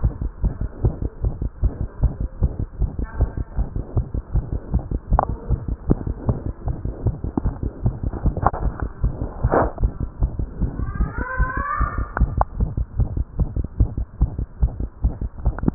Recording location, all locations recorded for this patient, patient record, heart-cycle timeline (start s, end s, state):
tricuspid valve (TV)
aortic valve (AV)+pulmonary valve (PV)+tricuspid valve (TV)+mitral valve (MV)
#Age: Child
#Sex: Male
#Height: 79.0 cm
#Weight: 9.79 kg
#Pregnancy status: False
#Murmur: Present
#Murmur locations: mitral valve (MV)+pulmonary valve (PV)+tricuspid valve (TV)
#Most audible location: tricuspid valve (TV)
#Systolic murmur timing: Holosystolic
#Systolic murmur shape: Plateau
#Systolic murmur grading: I/VI
#Systolic murmur pitch: Low
#Systolic murmur quality: Harsh
#Diastolic murmur timing: nan
#Diastolic murmur shape: nan
#Diastolic murmur grading: nan
#Diastolic murmur pitch: nan
#Diastolic murmur quality: nan
#Outcome: Abnormal
#Campaign: 2015 screening campaign
0.02	0.10	S1
0.10	0.18	systole
0.18	0.30	S2
0.30	0.42	diastole
0.42	0.53	S1
0.53	0.60	systole
0.60	0.68	S2
0.68	0.82	diastole
0.82	0.91	S1
0.91	1.01	systole
1.01	1.09	S2
1.09	1.24	diastole
1.24	1.34	S1
1.34	1.44	systole
1.44	1.50	S2
1.50	1.62	diastole
1.62	1.73	S1
1.73	1.80	systole
1.80	1.87	S2
1.87	2.02	diastole
2.02	2.12	S1
2.12	2.20	systole
2.20	2.29	S2
2.29	2.40	diastole
2.40	2.49	S1
2.49	2.59	systole
2.59	2.66	S2
2.66	2.80	diastole
2.80	2.90	S1
2.90	3.00	systole
3.00	3.06	S2
3.06	3.18	diastole
3.18	3.28	S1
3.28	3.35	systole
3.35	3.46	S2
3.46	3.56	diastole
3.56	3.66	S1
3.66	3.75	systole
3.75	3.82	S2
3.82	3.96	diastole
3.96	4.06	S1
4.06	4.16	systole
4.16	4.22	S2
4.22	4.34	diastole
4.34	4.44	S1
4.44	4.54	systole
4.54	4.60	S2
4.60	4.73	diastole
4.73	4.81	S1
4.81	4.91	systole
4.91	4.99	S2
4.99	5.10	diastole
5.10	5.18	S1
5.18	5.29	systole
5.29	5.37	S2
5.37	5.49	diastole
5.49	5.57	S1
5.57	5.70	systole
5.70	5.78	S2
5.78	5.88	diastole